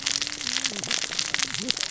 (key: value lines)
label: biophony, cascading saw
recorder: SoundTrap 600 or HydroMoth